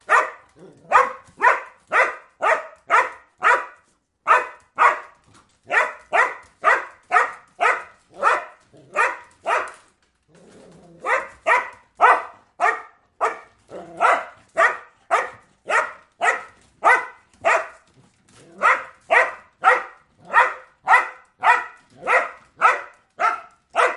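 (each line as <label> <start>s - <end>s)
A dog barks indoors. 0.0s - 24.0s
A dog hops excitedly on its paws indoors. 0.0s - 24.0s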